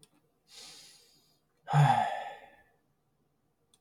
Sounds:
Sigh